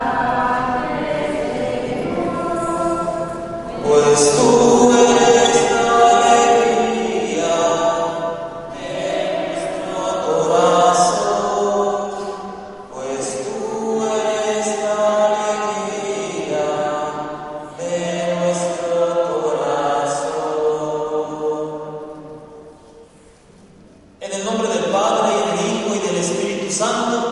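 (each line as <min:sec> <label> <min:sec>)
0:00.0 A religious choir is singing in a church. 0:03.7
0:03.7 A religious choir sings with a leading male voice. 0:22.9
0:24.2 A person is speaking indoors with good acoustics. 0:27.3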